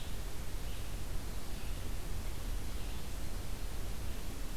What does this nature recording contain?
forest ambience